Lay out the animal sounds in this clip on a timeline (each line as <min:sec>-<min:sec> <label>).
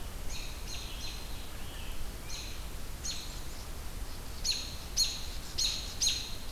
0:00.0-0:02.7 Scarlet Tanager (Piranga olivacea)
0:00.2-0:03.8 American Robin (Turdus migratorius)
0:03.7-0:06.2 unknown mammal
0:04.2-0:06.5 American Robin (Turdus migratorius)